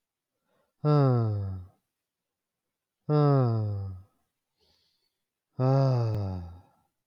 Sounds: Sigh